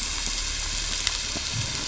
{"label": "anthrophony, boat engine", "recorder": "SoundTrap 500"}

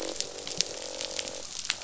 {"label": "biophony, croak", "recorder": "SoundTrap 500"}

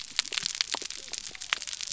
{"label": "biophony", "recorder": "SoundTrap 300"}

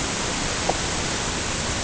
{"label": "ambient", "recorder": "HydroMoth"}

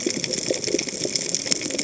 {"label": "biophony, cascading saw", "recorder": "HydroMoth"}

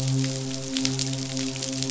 {"label": "biophony, midshipman", "recorder": "SoundTrap 500"}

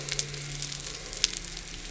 {"label": "anthrophony, boat engine", "recorder": "SoundTrap 300"}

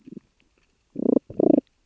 {"label": "biophony, damselfish", "recorder": "SoundTrap 600 or HydroMoth"}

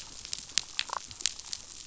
{"label": "biophony, damselfish", "recorder": "SoundTrap 500"}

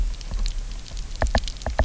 {"label": "biophony, knock", "recorder": "SoundTrap 300"}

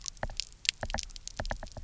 {"label": "biophony, knock", "recorder": "SoundTrap 300"}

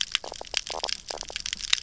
{"label": "biophony, knock croak", "recorder": "SoundTrap 300"}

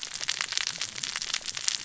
{"label": "biophony, cascading saw", "recorder": "SoundTrap 600 or HydroMoth"}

